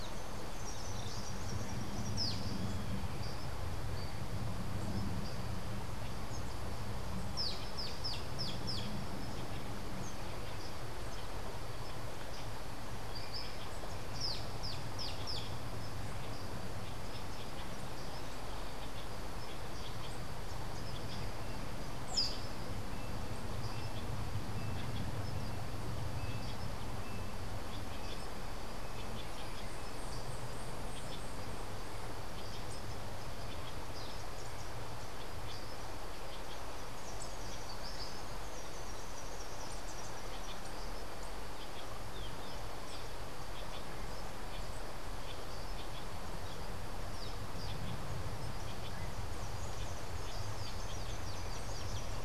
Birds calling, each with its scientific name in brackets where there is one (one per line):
Social Flycatcher (Myiozetetes similis)
Melodious Blackbird (Dives dives)